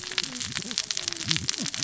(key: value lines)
label: biophony, cascading saw
recorder: SoundTrap 600 or HydroMoth